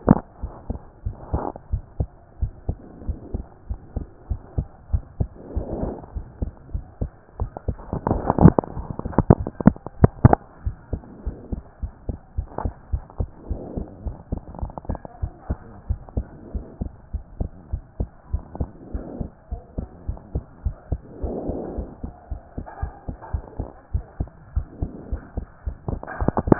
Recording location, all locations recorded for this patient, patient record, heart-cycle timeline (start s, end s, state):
pulmonary valve (PV)
aortic valve (AV)+pulmonary valve (PV)+tricuspid valve (TV)+mitral valve (MV)
#Age: Child
#Sex: Female
#Height: 113.0 cm
#Weight: 21.2 kg
#Pregnancy status: False
#Murmur: Absent
#Murmur locations: nan
#Most audible location: nan
#Systolic murmur timing: nan
#Systolic murmur shape: nan
#Systolic murmur grading: nan
#Systolic murmur pitch: nan
#Systolic murmur quality: nan
#Diastolic murmur timing: nan
#Diastolic murmur shape: nan
#Diastolic murmur grading: nan
#Diastolic murmur pitch: nan
#Diastolic murmur quality: nan
#Outcome: Abnormal
#Campaign: 2014 screening campaign
0.00	10.64	unannotated
10.64	10.76	S1
10.76	10.92	systole
10.92	11.02	S2
11.02	11.26	diastole
11.26	11.36	S1
11.36	11.52	systole
11.52	11.62	S2
11.62	11.82	diastole
11.82	11.92	S1
11.92	12.08	systole
12.08	12.18	S2
12.18	12.36	diastole
12.36	12.48	S1
12.48	12.64	systole
12.64	12.72	S2
12.72	12.92	diastole
12.92	13.04	S1
13.04	13.18	systole
13.18	13.28	S2
13.28	13.50	diastole
13.50	13.60	S1
13.60	13.76	systole
13.76	13.86	S2
13.86	14.04	diastole
14.04	14.16	S1
14.16	14.30	systole
14.30	14.40	S2
14.40	14.60	diastole
14.60	14.72	S1
14.72	14.88	systole
14.88	14.98	S2
14.98	15.22	diastole
15.22	15.32	S1
15.32	15.48	systole
15.48	15.58	S2
15.58	15.88	diastole
15.88	16.00	S1
16.00	16.16	systole
16.16	16.26	S2
16.26	16.54	diastole
16.54	16.66	S1
16.66	16.80	systole
16.80	16.90	S2
16.90	17.12	diastole
17.12	17.24	S1
17.24	17.38	systole
17.38	17.50	S2
17.50	17.72	diastole
17.72	17.82	S1
17.82	17.98	systole
17.98	18.08	S2
18.08	18.32	diastole
18.32	18.44	S1
18.44	18.58	systole
18.58	18.68	S2
18.68	18.92	diastole
18.92	19.04	S1
19.04	19.18	systole
19.18	19.28	S2
19.28	19.50	diastole
19.50	19.62	S1
19.62	19.78	systole
19.78	19.88	S2
19.88	20.08	diastole
20.08	20.18	S1
20.18	20.34	systole
20.34	20.42	S2
20.42	20.64	diastole
20.64	20.76	S1
20.76	20.90	systole
20.90	21.00	S2
21.00	21.22	diastole
21.22	21.36	S1
21.36	21.46	systole
21.46	21.56	S2
21.56	21.76	diastole
21.76	21.88	S1
21.88	22.02	systole
22.02	22.12	S2
22.12	22.30	diastole
22.30	22.40	S1
22.40	22.56	systole
22.56	22.66	S2
22.66	22.82	diastole
22.82	22.92	S1
22.92	23.08	systole
23.08	23.16	S2
23.16	23.32	diastole
23.32	23.44	S1
23.44	23.58	systole
23.58	23.68	S2
23.68	23.92	diastole
23.92	24.04	S1
24.04	24.18	systole
24.18	24.28	S2
24.28	24.54	diastole
24.54	24.66	S1
24.66	24.80	systole
24.80	24.90	S2
24.90	25.10	diastole
25.10	25.22	S1
25.22	25.36	systole
25.36	25.46	S2
25.46	25.66	diastole
25.66	25.76	S1
25.76	26.59	unannotated